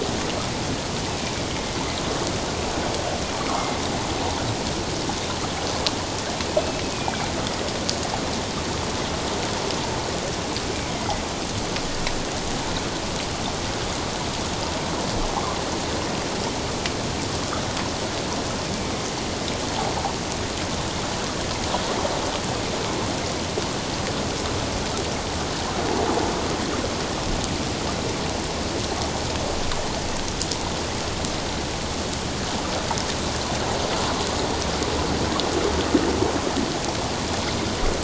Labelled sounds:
1.5	1.8	killer whale, northern resident, A clan, AA subclan, 2.1 to 2.2 kHz
3.6	3.8	killer whale, northern resident, A clan, AA subclan, 2.0 to 2.2 kHz
6.6	7.3	killer whale, northern resident, A clan, AA subclan, 2.1 to 2.7 kHz
10.7	11.0	killer whale, northern resident, A clan, AA subclan, 2.0 to 2.4 kHz

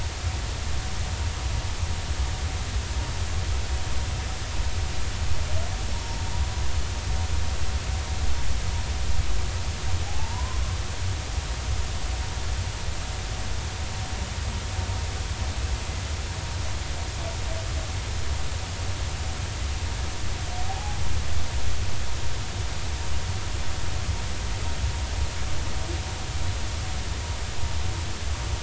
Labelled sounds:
5.9	6.2	humpback whale, 5.4 to 5.6 kHz
10.1	10.6	humpback whale, 0.80 to 1.1 kHz
20.7	21.0	humpback whale, 0.80 to 0.90 kHz

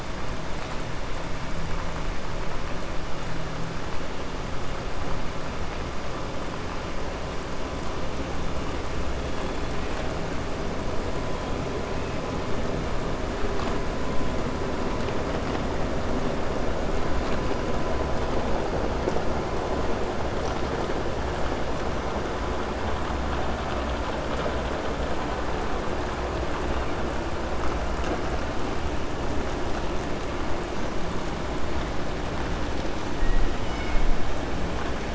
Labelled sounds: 33.6	34.0	killer whale, 1.4 to 3.7 kHz

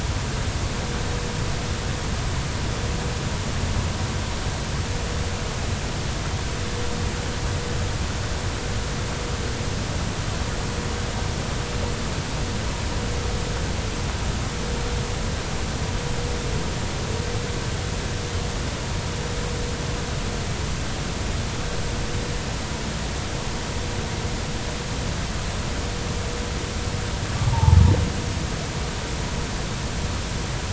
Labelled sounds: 27.5	27.8	humpback whale, 0.80 to 1.0 kHz

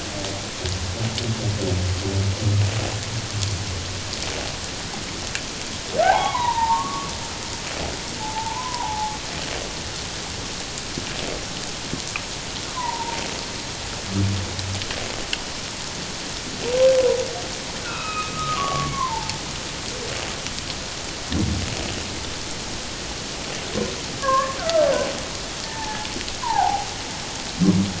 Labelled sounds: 6.0	7.1	humpback whale, 0.78 to 4.0 kHz
8.2	9.2	humpback whale, 0.78 to 1.1 kHz
12.7	13.2	humpback whale, 0.84 to 1.1 kHz
17.8	19.4	humpback whale, 0.81 to 3.9 kHz
24.2	24.9	humpback whale, 0.97 to 1.8 kHz
25.6	26.1	humpback whale, 0.78 to 1.9 kHz
26.4	26.9	humpback whale, 0.78 to 1.1 kHz

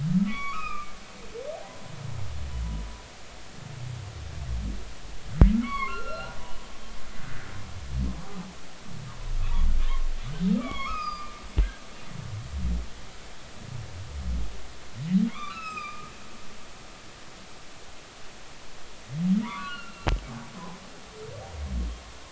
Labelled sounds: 0.3	0.6	humpback whale, 3.2 to 3.5 kHz
1.3	1.9	humpback whale, 1.1 to 2.8 kHz
5.5	6.4	humpback whale, 0.99 to 4.5 kHz
7.2	7.5	humpback whale, 1.4 to 1.7 kHz
9.4	9.7	humpback whale, 0.90 to 1.4 kHz
10.6	11.4	humpback whale, 0.96 to 6.7 kHz
15.3	16.1	humpback whale, 1.0 to 5.2 kHz
19.4	20.1	humpback whale, 0.90 to 2.9 kHz

